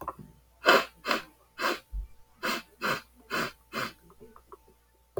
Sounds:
Sniff